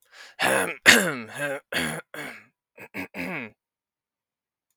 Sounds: Throat clearing